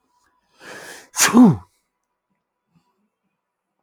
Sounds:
Sneeze